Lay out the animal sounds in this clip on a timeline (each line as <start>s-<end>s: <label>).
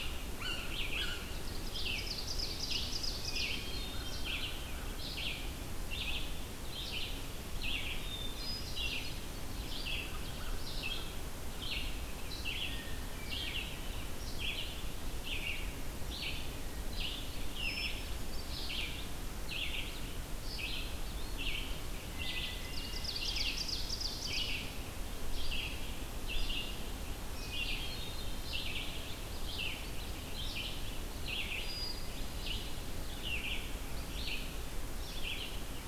0.0s-1.3s: Yellow-bellied Sapsucker (Sphyrapicus varius)
0.0s-35.9s: Red-eyed Vireo (Vireo olivaceus)
1.4s-3.5s: Ovenbird (Seiurus aurocapilla)
3.4s-4.3s: Hermit Thrush (Catharus guttatus)
3.7s-5.0s: American Crow (Corvus brachyrhynchos)
8.1s-9.2s: Hermit Thrush (Catharus guttatus)
9.8s-11.1s: American Crow (Corvus brachyrhynchos)
12.5s-13.7s: Hermit Thrush (Catharus guttatus)
17.6s-18.8s: Hermit Thrush (Catharus guttatus)
22.1s-23.3s: Hermit Thrush (Catharus guttatus)
22.6s-24.5s: Ovenbird (Seiurus aurocapilla)
27.7s-28.7s: Hermit Thrush (Catharus guttatus)
31.7s-32.7s: Hermit Thrush (Catharus guttatus)